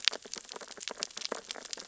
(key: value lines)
label: biophony, sea urchins (Echinidae)
recorder: SoundTrap 600 or HydroMoth